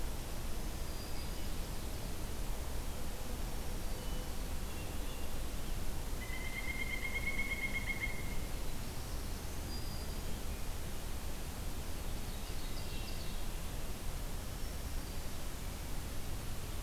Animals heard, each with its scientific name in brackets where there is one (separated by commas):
Black-throated Green Warbler (Setophaga virens), Hermit Thrush (Catharus guttatus), Pileated Woodpecker (Dryocopus pileatus), Ovenbird (Seiurus aurocapilla), Black-throated Blue Warbler (Setophaga caerulescens)